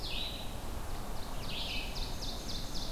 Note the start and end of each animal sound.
0.0s-2.9s: Red-eyed Vireo (Vireo olivaceus)
1.1s-2.9s: Ovenbird (Seiurus aurocapilla)

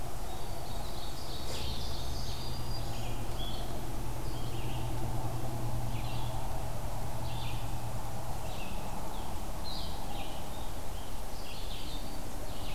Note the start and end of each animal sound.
0.0s-12.7s: Blue-headed Vireo (Vireo solitarius)
0.5s-2.5s: Ovenbird (Seiurus aurocapilla)
1.6s-3.3s: Black-throated Green Warbler (Setophaga virens)

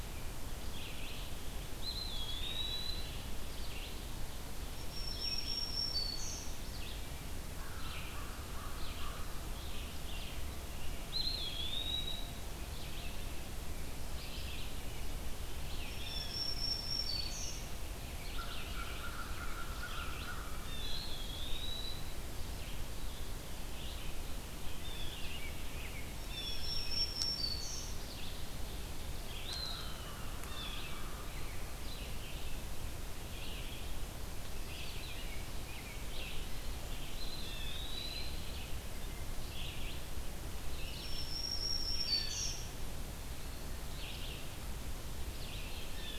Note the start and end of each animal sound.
0.0s-7.1s: Red-eyed Vireo (Vireo olivaceus)
1.6s-3.2s: Eastern Wood-Pewee (Contopus virens)
4.8s-6.7s: Black-throated Green Warbler (Setophaga virens)
7.5s-9.3s: American Crow (Corvus brachyrhynchos)
7.6s-46.2s: Red-eyed Vireo (Vireo olivaceus)
10.9s-12.5s: Eastern Wood-Pewee (Contopus virens)
15.7s-17.8s: Black-throated Green Warbler (Setophaga virens)
15.9s-16.5s: Blue Jay (Cyanocitta cristata)
18.2s-20.9s: American Crow (Corvus brachyrhynchos)
20.4s-22.1s: Eastern Wood-Pewee (Contopus virens)
24.8s-25.4s: Blue Jay (Cyanocitta cristata)
25.9s-28.1s: Black-throated Green Warbler (Setophaga virens)
26.2s-26.7s: Blue Jay (Cyanocitta cristata)
29.2s-30.2s: Eastern Wood-Pewee (Contopus virens)
29.4s-31.3s: American Crow (Corvus brachyrhynchos)
29.8s-30.9s: Blue Jay (Cyanocitta cristata)
37.0s-38.5s: Eastern Wood-Pewee (Contopus virens)
37.3s-37.8s: Blue Jay (Cyanocitta cristata)
40.7s-42.6s: Black-throated Green Warbler (Setophaga virens)
42.0s-42.5s: Blue Jay (Cyanocitta cristata)

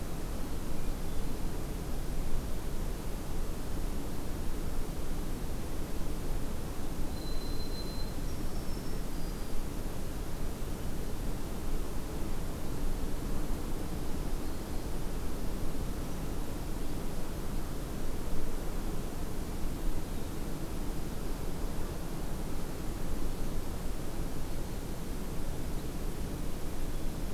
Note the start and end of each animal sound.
7.0s-9.7s: White-throated Sparrow (Zonotrichia albicollis)

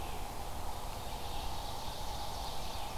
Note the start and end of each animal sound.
0.0s-3.0s: Red-eyed Vireo (Vireo olivaceus)
0.8s-3.0s: Ovenbird (Seiurus aurocapilla)
2.5s-3.0s: American Robin (Turdus migratorius)

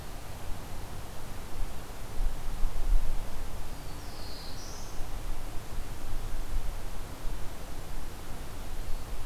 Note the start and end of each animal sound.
3.5s-5.2s: Black-throated Blue Warbler (Setophaga caerulescens)

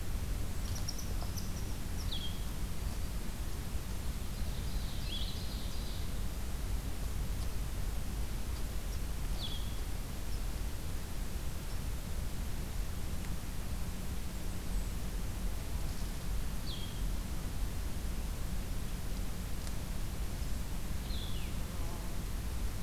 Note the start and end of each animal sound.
1.8s-2.5s: Blue-headed Vireo (Vireo solitarius)
4.4s-6.1s: Ovenbird (Seiurus aurocapilla)
5.0s-5.4s: Blue-headed Vireo (Vireo solitarius)
9.2s-9.7s: Blue-headed Vireo (Vireo solitarius)
16.5s-17.1s: Blue-headed Vireo (Vireo solitarius)
20.9s-21.7s: Blue-headed Vireo (Vireo solitarius)

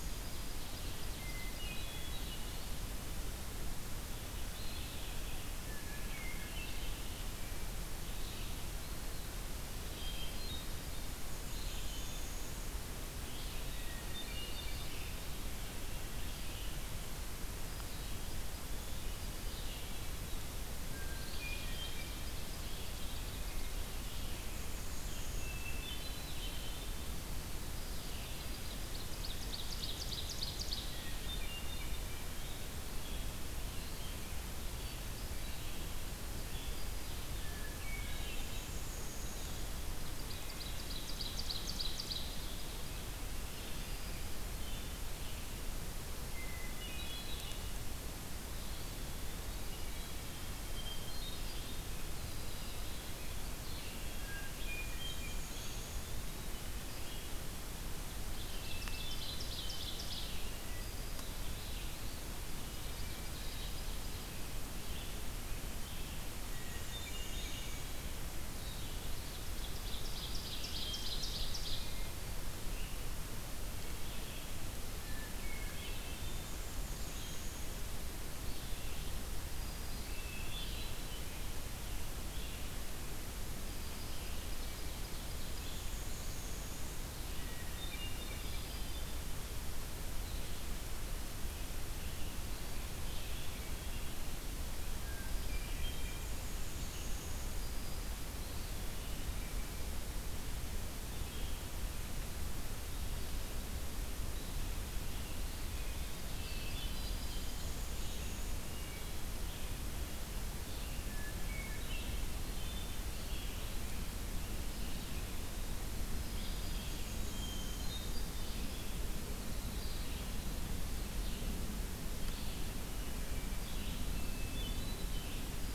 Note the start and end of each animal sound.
0.0s-2.9s: Winter Wren (Troglodytes hiemalis)
0.6s-57.3s: Red-eyed Vireo (Vireo olivaceus)
1.2s-2.4s: Hermit Thrush (Catharus guttatus)
5.7s-7.0s: Hermit Thrush (Catharus guttatus)
8.7s-9.4s: Eastern Wood-Pewee (Contopus virens)
9.7s-11.1s: Hermit Thrush (Catharus guttatus)
10.7s-12.6s: Black-and-white Warbler (Mniotilta varia)
13.6s-14.9s: Hermit Thrush (Catharus guttatus)
18.7s-19.8s: Hermit Thrush (Catharus guttatus)
20.7s-22.2s: Hermit Thrush (Catharus guttatus)
21.6s-23.8s: Ovenbird (Seiurus aurocapilla)
24.4s-25.7s: Black-and-white Warbler (Mniotilta varia)
25.4s-27.0s: Hermit Thrush (Catharus guttatus)
28.5s-31.0s: Ovenbird (Seiurus aurocapilla)
30.7s-32.1s: Hermit Thrush (Catharus guttatus)
37.3s-38.7s: Hermit Thrush (Catharus guttatus)
38.0s-39.5s: Black-and-white Warbler (Mniotilta varia)
40.3s-42.6s: Ovenbird (Seiurus aurocapilla)
46.2s-47.8s: Hermit Thrush (Catharus guttatus)
50.4s-51.8s: Hermit Thrush (Catharus guttatus)
54.0s-55.6s: Hermit Thrush (Catharus guttatus)
54.8s-56.2s: Black-and-white Warbler (Mniotilta varia)
58.0s-113.9s: Red-eyed Vireo (Vireo olivaceus)
58.3s-60.6s: Ovenbird (Seiurus aurocapilla)
58.5s-59.5s: Hermit Thrush (Catharus guttatus)
62.3s-64.4s: Ovenbird (Seiurus aurocapilla)
66.4s-67.9s: Black-and-white Warbler (Mniotilta varia)
66.6s-68.1s: Hermit Thrush (Catharus guttatus)
69.6s-71.9s: Ovenbird (Seiurus aurocapilla)
74.8s-76.5s: Hermit Thrush (Catharus guttatus)
76.2s-77.7s: Black-and-white Warbler (Mniotilta varia)
79.1s-80.2s: Black-throated Green Warbler (Setophaga virens)
79.6s-81.3s: Hermit Thrush (Catharus guttatus)
84.2s-85.7s: Ovenbird (Seiurus aurocapilla)
85.6s-86.9s: Black-and-white Warbler (Mniotilta varia)
87.3s-89.0s: Hermit Thrush (Catharus guttatus)
94.7s-96.3s: Hermit Thrush (Catharus guttatus)
96.1s-97.7s: Black-and-white Warbler (Mniotilta varia)
98.3s-99.6s: Eastern Wood-Pewee (Contopus virens)
106.4s-107.6s: Hermit Thrush (Catharus guttatus)
107.1s-108.6s: Black-and-white Warbler (Mniotilta varia)
108.7s-109.4s: Hermit Thrush (Catharus guttatus)
110.9s-112.2s: Hermit Thrush (Catharus guttatus)
112.4s-113.2s: Wood Thrush (Hylocichla mustelina)
114.6s-116.2s: Eastern Wood-Pewee (Contopus virens)
116.3s-125.7s: Red-eyed Vireo (Vireo olivaceus)
116.6s-118.1s: Black-and-white Warbler (Mniotilta varia)
117.2s-118.7s: Hermit Thrush (Catharus guttatus)
123.9s-125.2s: Hermit Thrush (Catharus guttatus)

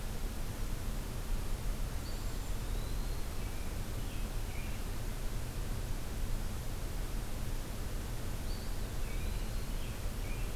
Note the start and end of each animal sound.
1.8s-3.2s: Eastern Wood-Pewee (Contopus virens)
1.8s-2.6s: Cedar Waxwing (Bombycilla cedrorum)
3.2s-5.1s: American Robin (Turdus migratorius)
8.4s-9.7s: Eastern Wood-Pewee (Contopus virens)
9.0s-10.6s: American Robin (Turdus migratorius)

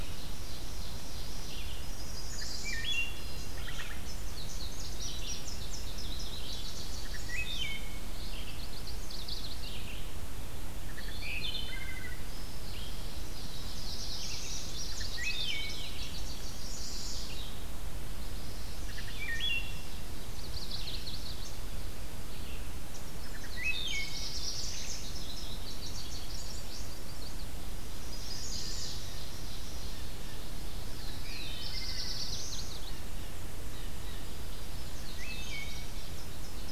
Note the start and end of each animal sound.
0.0s-1.8s: Ovenbird (Seiurus aurocapilla)
0.0s-17.6s: Red-eyed Vireo (Vireo olivaceus)
1.7s-3.2s: Chestnut-sided Warbler (Setophaga pensylvanica)
2.2s-3.5s: Wood Thrush (Hylocichla mustelina)
3.5s-8.1s: Indigo Bunting (Passerina cyanea)
6.4s-8.2s: Black-and-white Warbler (Mniotilta varia)
6.8s-8.4s: Wood Thrush (Hylocichla mustelina)
8.3s-10.0s: Chestnut-sided Warbler (Setophaga pensylvanica)
10.7s-12.5s: Wood Thrush (Hylocichla mustelina)
12.8s-14.8s: Black-throated Blue Warbler (Setophaga caerulescens)
13.6s-16.7s: Indigo Bunting (Passerina cyanea)
14.9s-16.0s: Wood Thrush (Hylocichla mustelina)
15.7s-17.4s: Chestnut-sided Warbler (Setophaga pensylvanica)
17.9s-19.3s: Chestnut-sided Warbler (Setophaga pensylvanica)
18.7s-36.7s: Red-eyed Vireo (Vireo olivaceus)
18.7s-20.0s: Wood Thrush (Hylocichla mustelina)
18.9s-20.5s: Ovenbird (Seiurus aurocapilla)
20.1s-21.7s: Chestnut-sided Warbler (Setophaga pensylvanica)
23.2s-24.4s: Wood Thrush (Hylocichla mustelina)
23.3s-25.3s: Black-throated Blue Warbler (Setophaga caerulescens)
24.7s-26.9s: Indigo Bunting (Passerina cyanea)
26.7s-29.0s: Chestnut-sided Warbler (Setophaga pensylvanica)
28.4s-31.1s: Ovenbird (Seiurus aurocapilla)
29.7s-30.4s: Blue Jay (Cyanocitta cristata)
30.8s-32.9s: Black-throated Blue Warbler (Setophaga caerulescens)
31.0s-32.3s: Wood Thrush (Hylocichla mustelina)
32.6s-34.3s: Blue Jay (Cyanocitta cristata)
32.7s-34.5s: Black-and-white Warbler (Mniotilta varia)
34.1s-36.7s: Indigo Bunting (Passerina cyanea)
35.0s-36.2s: Wood Thrush (Hylocichla mustelina)

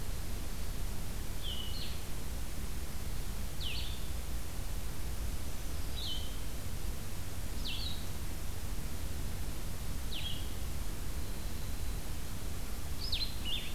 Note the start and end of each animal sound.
0.0s-0.8s: Winter Wren (Troglodytes hiemalis)
0.0s-10.5s: Blue-headed Vireo (Vireo solitarius)
5.0s-6.2s: Black-throated Green Warbler (Setophaga virens)
11.0s-12.6s: Winter Wren (Troglodytes hiemalis)
13.0s-13.7s: Blue-headed Vireo (Vireo solitarius)

